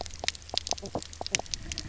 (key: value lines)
label: biophony, knock croak
recorder: SoundTrap 300